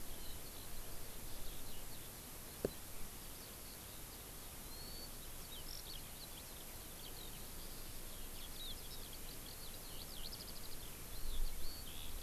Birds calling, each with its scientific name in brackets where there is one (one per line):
Warbling White-eye (Zosterops japonicus)
Eurasian Skylark (Alauda arvensis)